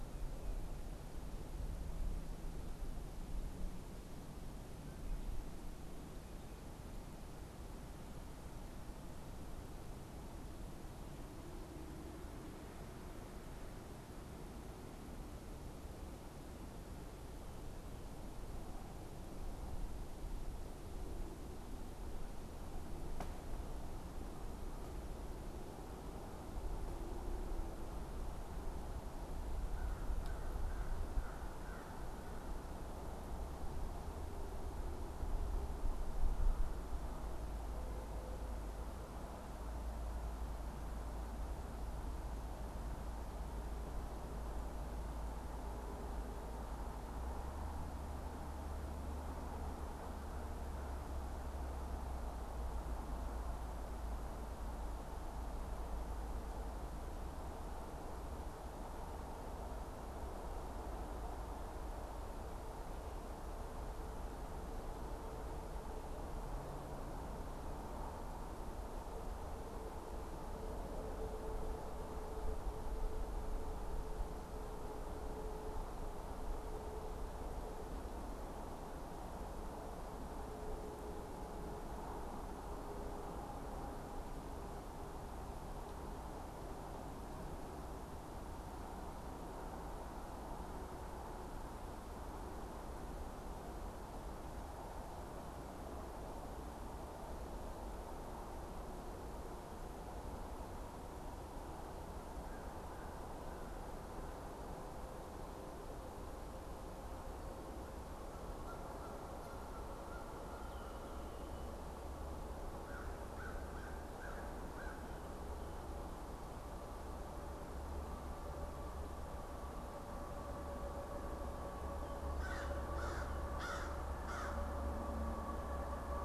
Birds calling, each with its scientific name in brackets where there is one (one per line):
American Crow (Corvus brachyrhynchos)
Canada Goose (Branta canadensis)